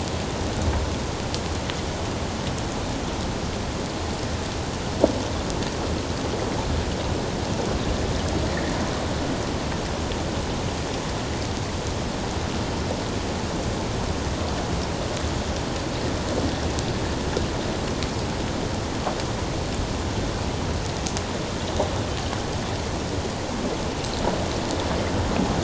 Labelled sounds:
8.5	8.8	water noise, 1.7 to 2.0 kHz

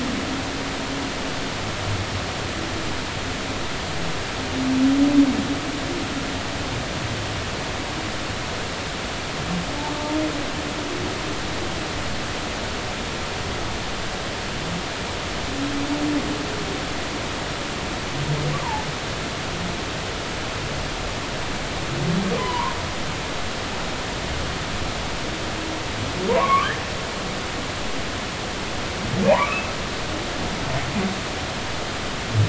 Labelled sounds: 22.4	22.8	humpback whale, 0.90 to 3.1 kHz
26.3	26.7	humpback whale, 0.86 to 2.4 kHz
29.3	29.7	humpback whale, 0.80 to 2.7 kHz

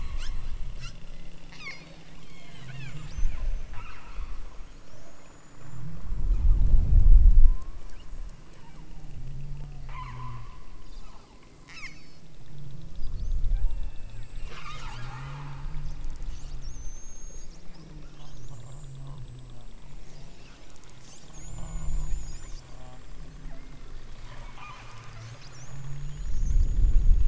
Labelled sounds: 1.4	3.1	killer whale, southern Alaska resident, 0.66 to 8.0 kHz
3.6	4.4	killer whale, southern Alaska resident, 0.50 to 3.0 kHz
7.4	8.1	killer whale, southern Alaska resident, 0.87 to 3.2 kHz
9.8	10.6	killer whale, southern Alaska resident, 0.62 to 5.9 kHz
11.6	12.3	killer whale, southern Alaska resident, 0.87 to 8.0 kHz
13.5	15.8	killer whale, southern Alaska resident, 0.32 to 8.0 kHz
21.4	22.1	killer whale, southern Alaska resident, 0.43 to 2.4 kHz
23.4	23.9	killer whale, southern Alaska resident, 0.46 to 2.1 kHz
24.2	25.4	killer whale, southern Alaska resident, 0.41 to 8.0 kHz

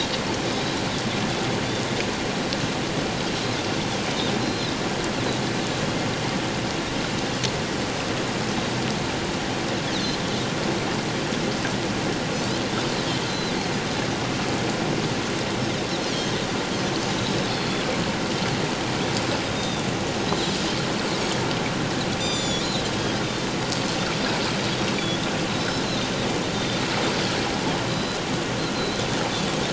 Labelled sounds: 4.4	4.7	Pacific white-sided dolphin, 3.9 to 4.2 kHz
13.3	13.5	Pacific white-sided dolphin, 4.0 to 4.2 kHz
16.1	16.3	Pacific white-sided dolphin, 4.2 to 4.8 kHz
17.6	17.8	Pacific white-sided dolphin, 3.3 to 3.6 kHz
19.6	19.9	Pacific white-sided dolphin, 3.4 to 3.8 kHz
22.2	22.8	Pacific white-sided dolphin, 3.3 to 7.3 kHz
23.2	23.5	Pacific white-sided dolphin, 3.5 to 3.8 kHz
24.9	25.2	Pacific white-sided dolphin, 3.3 to 3.5 kHz
25.5	26.8	Pacific white-sided dolphin, 3.5 to 4.0 kHz
27.9	28.2	Pacific white-sided dolphin, 3.9 to 5.0 kHz
28.7	29.0	Pacific white-sided dolphin, 3.8 to 4.2 kHz

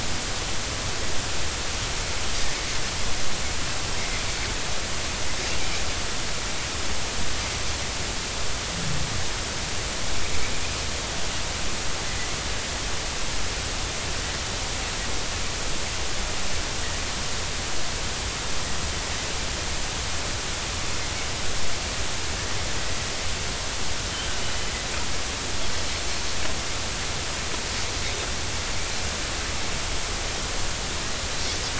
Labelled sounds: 24.4	24.7	Pacific white-sided dolphin, 2.9 to 3.0 kHz

